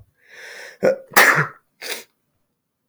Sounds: Sneeze